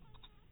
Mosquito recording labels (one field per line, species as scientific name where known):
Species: mosquito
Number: one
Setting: cup